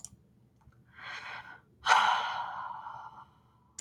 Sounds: Sigh